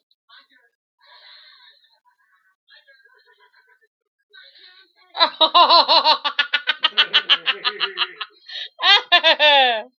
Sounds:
Laughter